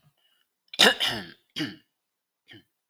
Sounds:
Throat clearing